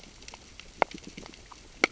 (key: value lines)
label: biophony, grazing
recorder: SoundTrap 600 or HydroMoth